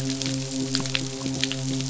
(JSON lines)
{"label": "biophony, midshipman", "recorder": "SoundTrap 500"}